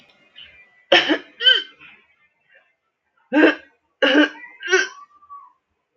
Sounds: Throat clearing